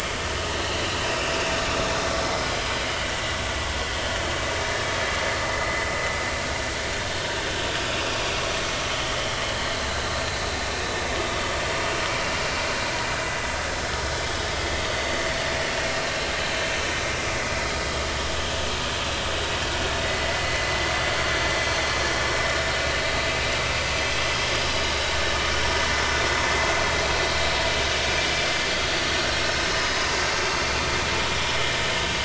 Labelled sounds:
10.1	10.4	vessel noise, 3.9 to 4.2 kHz
12.2	12.4	vessel noise, 2.7 to 2.9 kHz
20.0	20.7	vessel noise, 1.9 to 2.1 kHz
22.2	22.5	vessel noise, 5.4 to 5.5 kHz
29.7	30.0	vessel noise, 5.0 to 5.2 kHz

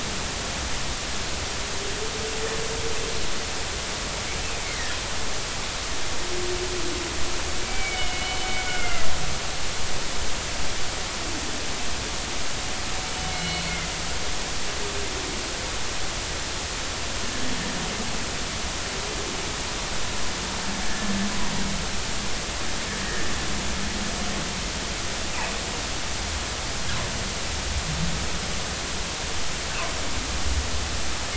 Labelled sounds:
4.6	5.0	humpback whale, 1.7 to 2.3 kHz
7.6	9.1	humpback whale, 1.3 to 3.1 kHz
13.3	13.7	humpback whale, 2.1 to 4.1 kHz
20.8	21.1	humpback whale, 1.7 to 1.8 kHz
23.0	23.3	humpback whale, 1.6 to 1.9 kHz

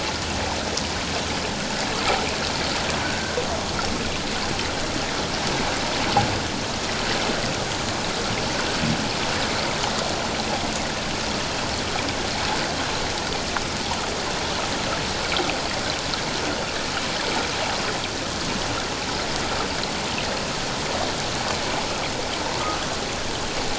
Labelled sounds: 3.0	3.4	humpback whale, 1.4 to 1.6 kHz

